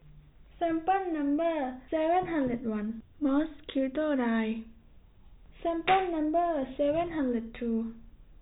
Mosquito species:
no mosquito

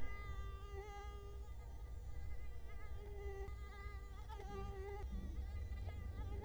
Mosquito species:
Culex quinquefasciatus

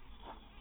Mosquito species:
mosquito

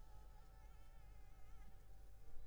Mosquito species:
Anopheles arabiensis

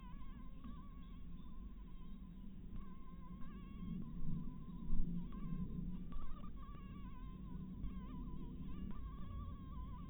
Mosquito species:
Anopheles harrisoni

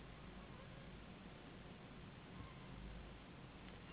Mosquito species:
Anopheles gambiae s.s.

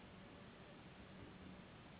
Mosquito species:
Anopheles gambiae s.s.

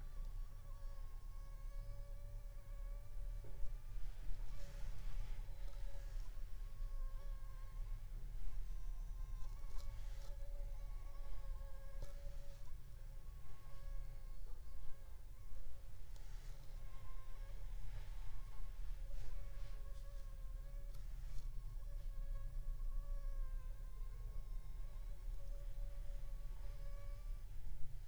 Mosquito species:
Anopheles funestus s.s.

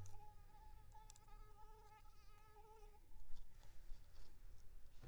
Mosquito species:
Anopheles arabiensis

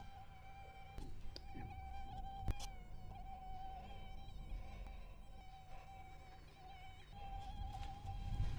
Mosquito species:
Anopheles gambiae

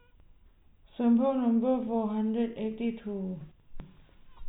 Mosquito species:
no mosquito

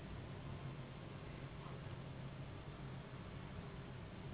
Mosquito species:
Anopheles gambiae s.s.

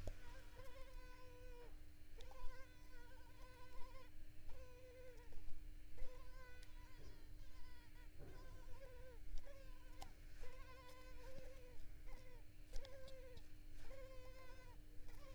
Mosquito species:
Culex pipiens complex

